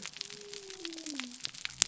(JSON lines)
{"label": "biophony", "recorder": "SoundTrap 300"}